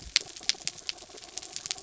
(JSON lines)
{"label": "anthrophony, mechanical", "recorder": "SoundTrap 300"}